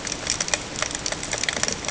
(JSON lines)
{"label": "ambient", "recorder": "HydroMoth"}